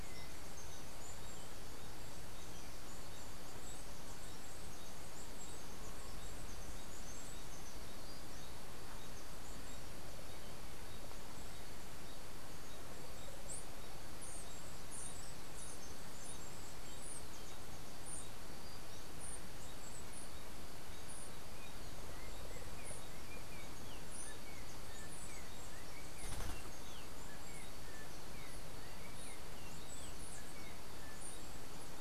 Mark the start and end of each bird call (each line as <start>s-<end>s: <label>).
13.2s-17.4s: Chestnut-capped Brushfinch (Arremon brunneinucha)
21.5s-31.3s: Yellow-backed Oriole (Icterus chrysater)